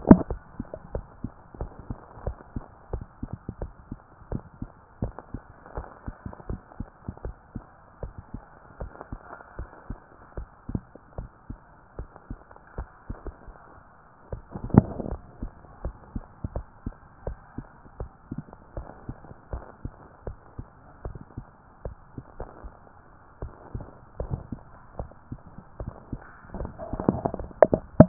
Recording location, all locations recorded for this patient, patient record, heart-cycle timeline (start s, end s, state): tricuspid valve (TV)
pulmonary valve (PV)+tricuspid valve (TV)+mitral valve (MV)
#Age: nan
#Sex: Female
#Height: nan
#Weight: nan
#Pregnancy status: True
#Murmur: Absent
#Murmur locations: nan
#Most audible location: nan
#Systolic murmur timing: nan
#Systolic murmur shape: nan
#Systolic murmur grading: nan
#Systolic murmur pitch: nan
#Systolic murmur quality: nan
#Diastolic murmur timing: nan
#Diastolic murmur shape: nan
#Diastolic murmur grading: nan
#Diastolic murmur pitch: nan
#Diastolic murmur quality: nan
#Outcome: Normal
#Campaign: 2014 screening campaign
0.00	0.82	unannotated
0.82	0.94	diastole
0.94	1.06	S1
1.06	1.22	systole
1.22	1.32	S2
1.32	1.58	diastole
1.58	1.70	S1
1.70	1.88	systole
1.88	1.98	S2
1.98	2.24	diastole
2.24	2.36	S1
2.36	2.54	systole
2.54	2.64	S2
2.64	2.92	diastole
2.92	3.04	S1
3.04	3.22	systole
3.22	3.30	S2
3.30	3.60	diastole
3.60	3.72	S1
3.72	3.90	systole
3.90	3.98	S2
3.98	4.30	diastole
4.30	4.42	S1
4.42	4.60	systole
4.60	4.70	S2
4.70	5.02	diastole
5.02	5.14	S1
5.14	5.32	systole
5.32	5.42	S2
5.42	5.76	diastole
5.76	5.88	S1
5.88	6.06	systole
6.06	6.14	S2
6.14	6.48	diastole
6.48	6.60	S1
6.60	6.78	systole
6.78	6.88	S2
6.88	7.24	diastole
7.24	7.36	S1
7.36	7.54	systole
7.54	7.64	S2
7.64	8.02	diastole
8.02	8.14	S1
8.14	8.32	systole
8.32	8.42	S2
8.42	8.80	diastole
8.80	8.92	S1
8.92	9.10	systole
9.10	9.20	S2
9.20	9.58	diastole
9.58	9.68	S1
9.68	9.88	systole
9.88	9.98	S2
9.98	10.36	diastole
10.36	10.48	S1
10.48	10.70	systole
10.70	10.82	S2
10.82	11.18	diastole
11.18	11.30	S1
11.30	11.48	systole
11.48	11.58	S2
11.58	11.98	diastole
11.98	12.08	S1
12.08	12.28	systole
12.28	12.40	S2
12.40	12.78	diastole
12.78	28.08	unannotated